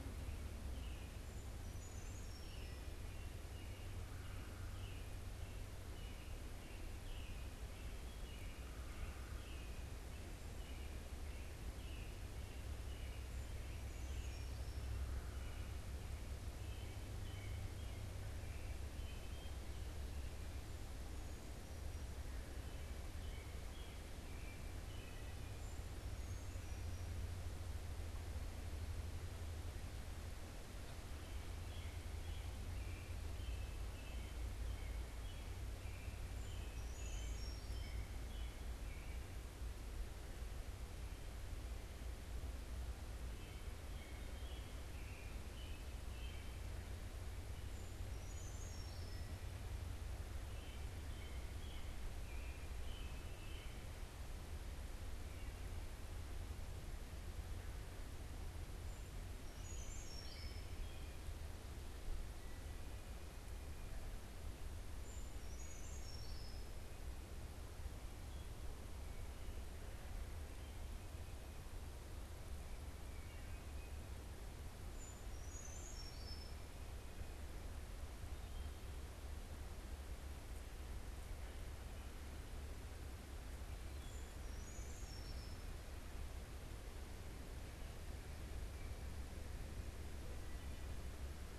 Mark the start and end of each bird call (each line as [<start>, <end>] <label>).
[0.00, 15.80] unidentified bird
[0.00, 54.10] American Robin (Turdus migratorius)
[1.00, 2.90] Brown Creeper (Certhia americana)
[25.30, 27.20] Brown Creeper (Certhia americana)
[36.20, 38.20] Brown Creeper (Certhia americana)
[47.51, 49.60] Brown Creeper (Certhia americana)
[59.01, 60.70] Brown Creeper (Certhia americana)
[64.91, 66.81] Brown Creeper (Certhia americana)
[72.91, 73.91] Wood Thrush (Hylocichla mustelina)
[74.70, 76.70] Brown Creeper (Certhia americana)
[83.81, 85.81] Brown Creeper (Certhia americana)